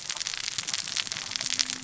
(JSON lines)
{"label": "biophony, cascading saw", "recorder": "SoundTrap 600 or HydroMoth"}